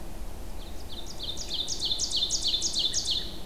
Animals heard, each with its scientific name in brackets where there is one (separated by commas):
Ovenbird (Seiurus aurocapilla), American Robin (Turdus migratorius)